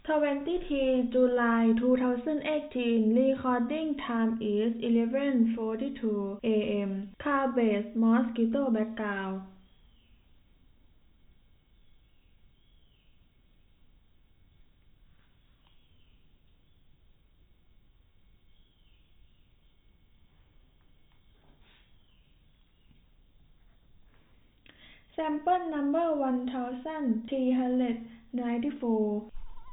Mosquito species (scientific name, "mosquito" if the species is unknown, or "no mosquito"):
no mosquito